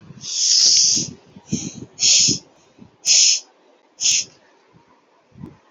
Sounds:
Sigh